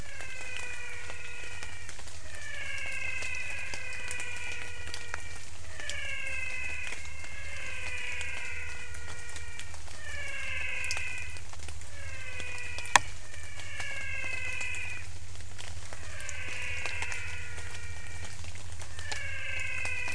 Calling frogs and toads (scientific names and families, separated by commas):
Physalaemus albonotatus (Leptodactylidae)